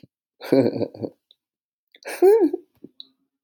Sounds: Laughter